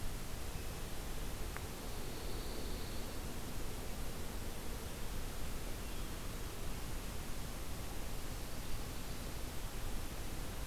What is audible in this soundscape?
Pine Warbler, Hermit Thrush